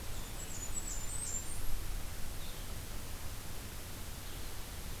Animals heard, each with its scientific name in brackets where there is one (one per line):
Blackburnian Warbler (Setophaga fusca)
Blue-headed Vireo (Vireo solitarius)